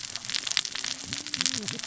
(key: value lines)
label: biophony, cascading saw
recorder: SoundTrap 600 or HydroMoth